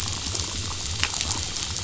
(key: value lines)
label: biophony
recorder: SoundTrap 500